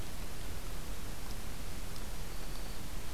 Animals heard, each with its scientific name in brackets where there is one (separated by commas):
Black-throated Green Warbler (Setophaga virens)